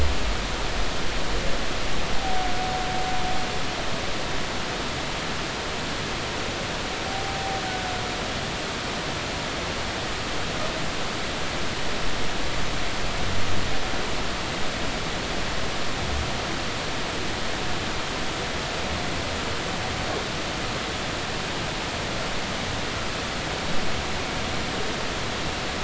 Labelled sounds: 7.1	7.6	humpback whale, 0.80 to 0.83 kHz

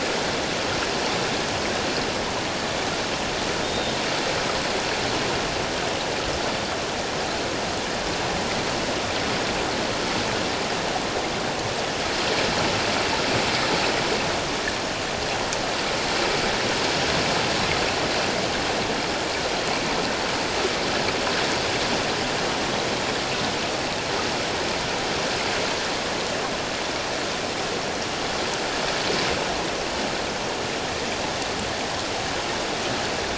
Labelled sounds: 3.6	3.9	Pacific white-sided dolphin, 3.5 to 3.9 kHz

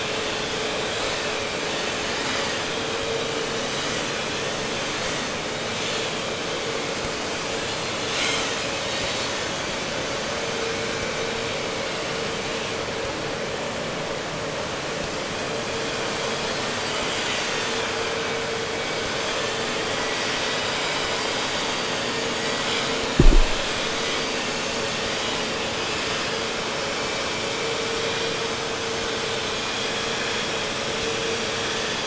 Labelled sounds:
7.8	9.6	vessel noise, 1.3 to 7.0 kHz
16.2	32.0	vessel noise, 0.94 to 5.4 kHz

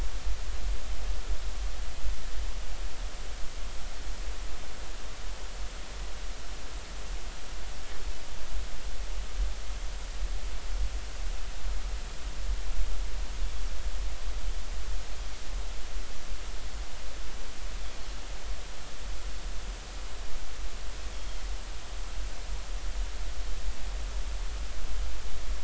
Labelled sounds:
21.1	21.4	Pacific white-sided dolphin, 3.1 to 3.4 kHz

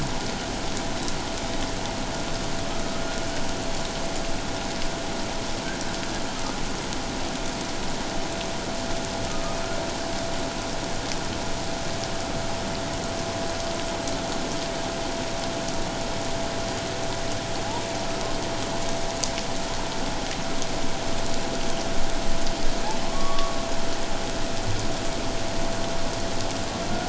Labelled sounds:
23.0	23.6	humpback whale, 1.0 to 1.2 kHz

